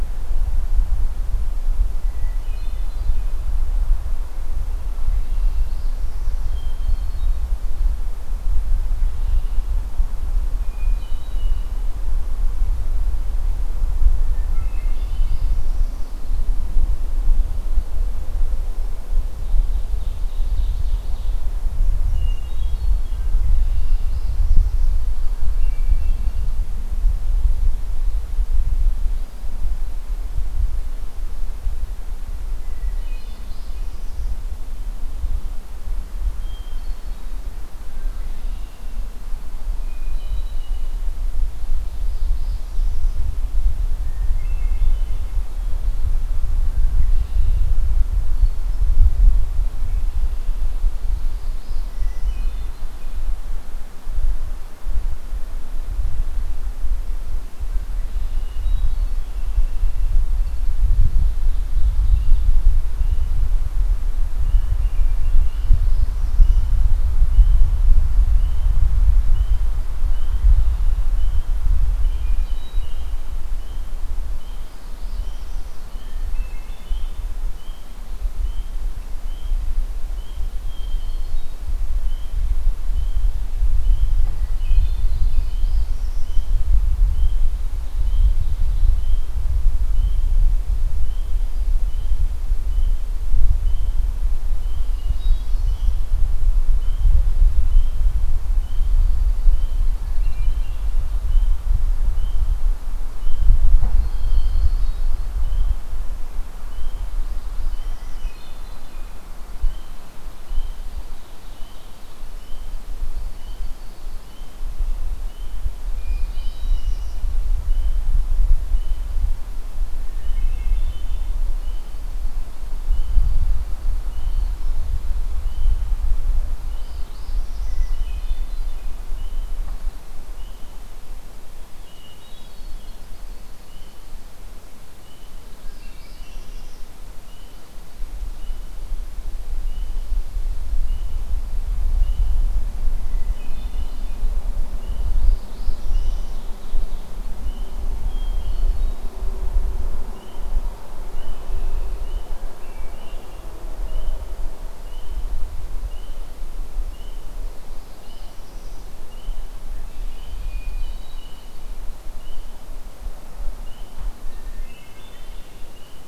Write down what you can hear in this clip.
Hermit Thrush, Northern Parula, Red-winged Blackbird, Ovenbird, Yellow-rumped Warbler